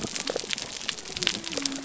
{"label": "biophony", "recorder": "SoundTrap 300"}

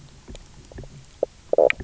{"label": "biophony, knock croak", "recorder": "SoundTrap 300"}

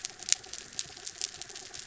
{"label": "anthrophony, mechanical", "recorder": "SoundTrap 300"}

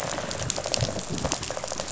{"label": "biophony, rattle response", "recorder": "SoundTrap 500"}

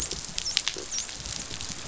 {"label": "biophony, dolphin", "recorder": "SoundTrap 500"}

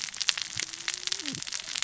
{"label": "biophony, cascading saw", "recorder": "SoundTrap 600 or HydroMoth"}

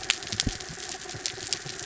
{"label": "anthrophony, mechanical", "recorder": "SoundTrap 300"}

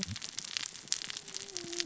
{"label": "biophony, cascading saw", "recorder": "SoundTrap 600 or HydroMoth"}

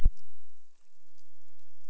{"label": "biophony", "recorder": "SoundTrap 300"}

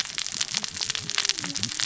{"label": "biophony, cascading saw", "recorder": "SoundTrap 600 or HydroMoth"}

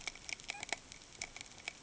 {"label": "ambient", "recorder": "HydroMoth"}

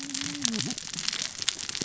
{"label": "biophony, cascading saw", "recorder": "SoundTrap 600 or HydroMoth"}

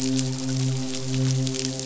{"label": "biophony, midshipman", "recorder": "SoundTrap 500"}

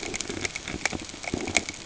{"label": "ambient", "recorder": "HydroMoth"}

